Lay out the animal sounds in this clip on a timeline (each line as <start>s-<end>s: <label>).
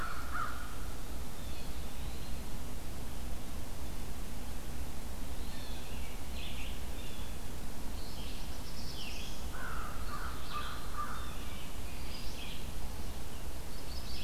0.0s-0.9s: American Crow (Corvus brachyrhynchos)
1.3s-1.8s: Blue Jay (Cyanocitta cristata)
1.7s-2.5s: Eastern Wood-Pewee (Contopus virens)
5.4s-7.4s: Blue Jay (Cyanocitta cristata)
6.3s-14.2s: Red-eyed Vireo (Vireo olivaceus)
8.3s-9.5s: Black-throated Blue Warbler (Setophaga caerulescens)
9.5s-11.4s: American Crow (Corvus brachyrhynchos)
11.2s-11.8s: Blue Jay (Cyanocitta cristata)
13.7s-14.2s: Chimney Swift (Chaetura pelagica)